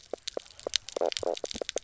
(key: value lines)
label: biophony, knock croak
recorder: SoundTrap 300